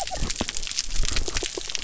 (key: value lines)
label: biophony
recorder: SoundTrap 300